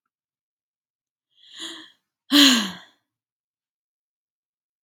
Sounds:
Sigh